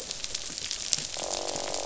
{"label": "biophony, croak", "recorder": "SoundTrap 500"}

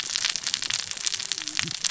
{"label": "biophony, cascading saw", "recorder": "SoundTrap 600 or HydroMoth"}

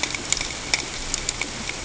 {"label": "ambient", "recorder": "HydroMoth"}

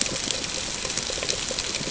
{"label": "ambient", "recorder": "HydroMoth"}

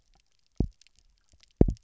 {"label": "biophony, double pulse", "recorder": "SoundTrap 300"}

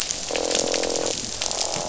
{"label": "biophony, croak", "recorder": "SoundTrap 500"}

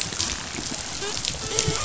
{"label": "biophony, dolphin", "recorder": "SoundTrap 500"}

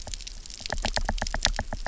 {"label": "biophony, knock", "recorder": "SoundTrap 300"}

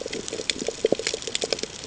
{"label": "ambient", "recorder": "HydroMoth"}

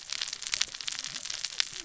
{"label": "biophony, cascading saw", "recorder": "SoundTrap 600 or HydroMoth"}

